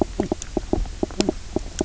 {"label": "biophony, knock croak", "recorder": "SoundTrap 300"}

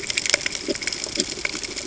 {"label": "ambient", "recorder": "HydroMoth"}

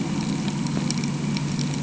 {"label": "anthrophony, boat engine", "recorder": "HydroMoth"}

